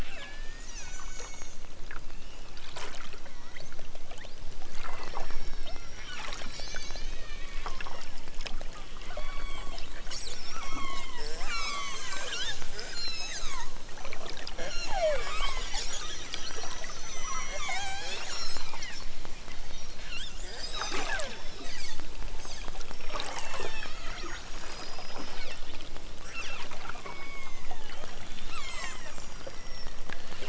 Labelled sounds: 0.0	1.6	killer whale, southern Alaska resident, 0.97 to 8.0 kHz
3.3	7.3	killer whale, southern Alaska resident, 1.1 to 6.6 kHz
7.6	8.5	killer whale, southern Alaska resident, 1.2 to 5.9 kHz
9.1	9.8	killer whale, southern Alaska resident, 0.78 to 5.0 kHz
10.6	11.2	killer whale, southern Alaska resident, 0.60 to 5.8 kHz
11.5	13.8	killer whale, southern Alaska resident, 0.65 to 8.0 kHz
14.5	15.7	killer whale, southern Alaska resident, 0.78 to 6.2 kHz
17.2	19.0	killer whale, southern Alaska resident, 0.37 to 8.0 kHz
20.0	21.7	killer whale, southern Alaska resident, 0.32 to 8.0 kHz
22.8	25.4	killer whale, southern Alaska resident, 0.78 to 6.7 kHz
26.9	30.1	killer whale, southern Alaska resident, 0.55 to 8.0 kHz

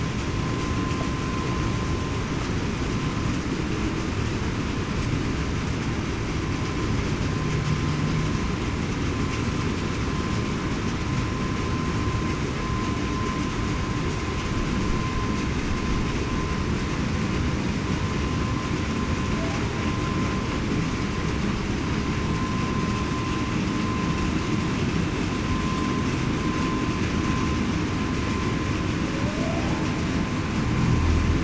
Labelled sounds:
29.1	29.7	humpback whale, 0.54 to 0.87 kHz

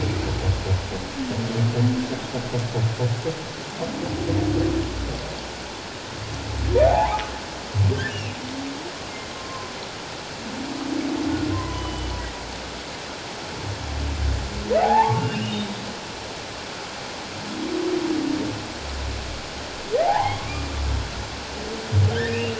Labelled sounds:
6.9	7.3	humpback whale, 0.78 to 1.1 kHz
7.9	8.2	humpback whale, 1.5 to 1.8 kHz
9.4	9.7	humpback whale, 0.97 to 1.1 kHz
11.5	12.1	humpback whale, 0.94 to 3.1 kHz
14.8	15.6	humpback whale, 0.78 to 3.1 kHz
20.0	20.7	humpback whale, 0.78 to 2.5 kHz
22.1	22.5	humpback whale, 1.5 to 2.9 kHz

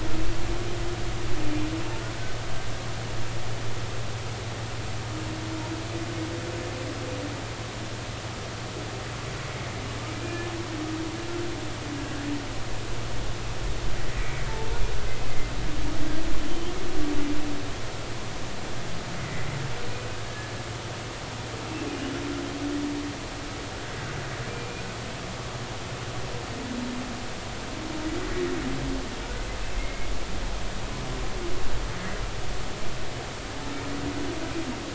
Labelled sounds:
10.2	10.5	humpback whale, 2.4 to 2.5 kHz
16.4	16.7	humpback whale, 3.0 to 3.3 kHz
20.3	20.5	humpback whale, 1.6 to 1.8 kHz
24.5	24.8	humpback whale, 2.3 to 2.5 kHz
29.8	30.1	humpback whale, 2.1 to 2.2 kHz

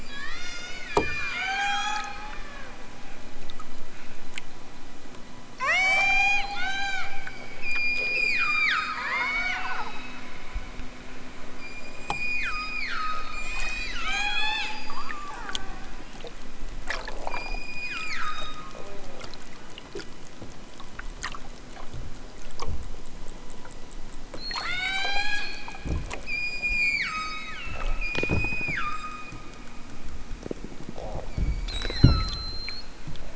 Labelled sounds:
0.0	2.2	killer whale, southern Alaska resident, 0.23 to 8.0 kHz
5.5	7.2	killer whale, southern Alaska resident, 0.32 to 8.0 kHz
7.6	9.6	killer whale, southern Alaska resident, 0.60 to 8.0 kHz
11.6	14.9	killer whale, southern Alaska resident, 0.32 to 8.0 kHz
17.2	18.8	killer whale, southern Alaska resident, 0.83 to 7.7 kHz
24.3	25.7	killer whale, southern Alaska resident, 0.55 to 8.0 kHz
26.2	29.5	killer whale, southern Alaska resident, 0.78 to 8.0 kHz
31.3	32.6	killer whale, southern Alaska resident, 0.87 to 8.0 kHz

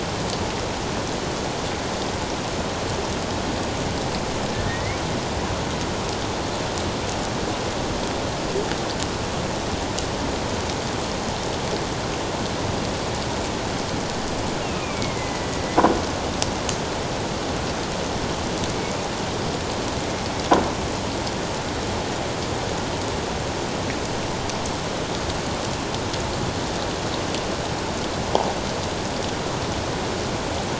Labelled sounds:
4.7	5.0	killer whale, northern resident, A clan, AA subclan, A04 pod, 1.8 to 2.4 kHz
14.8	15.6	killer whale, northern resident, A clan, AA subclan, A04 pod, 1.9 to 2.5 kHz

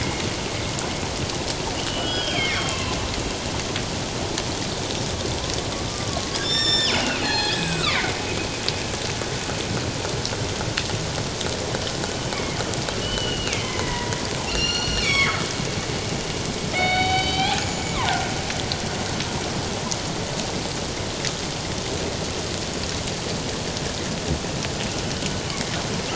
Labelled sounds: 1.9	3.0	killer whale, northern resident, G clan, 0.97 to 3.4 kHz
5.9	8.2	killer whale, northern resident, G clan, 0.78 to 7.9 kHz
12.3	15.4	killer whale, northern resident, G clan, 0.91 to 7.2 kHz
16.7	18.3	killer whale, northern resident, G clan, 0.78 to 7.1 kHz
25.5	25.7	killer whale, northern resident, G clan, 2.0 to 2.3 kHz

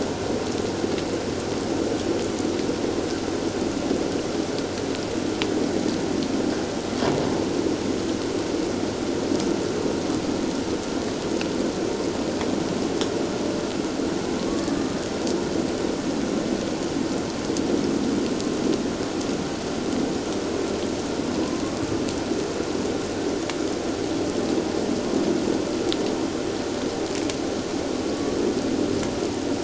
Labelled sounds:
14.4	15.0	killer whale, Bigg's (transient), 1.1 to 1.2 kHz
28.1	28.4	killer whale, Bigg's (transient), 1.1 to 1.2 kHz

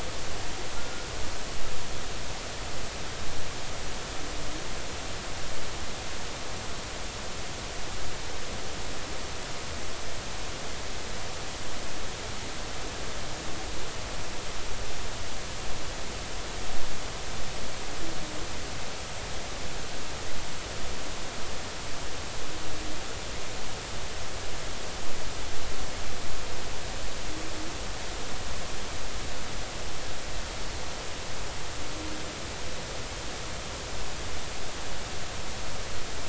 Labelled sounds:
0.8	1.1	humpback whale, 1.3 to 1.4 kHz

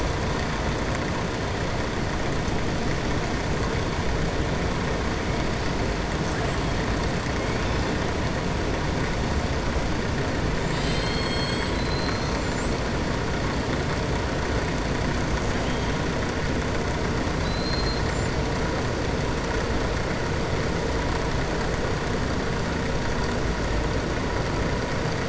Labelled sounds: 6.1	6.9	killer whale, southern resident, 5.7 to 8.0 kHz
10.5	11.7	killer whale, southern resident, 6.8 to 7.9 kHz
17.3	18.1	killer whale, southern resident, 3.9 to 4.7 kHz

